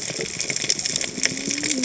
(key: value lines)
label: biophony, cascading saw
recorder: HydroMoth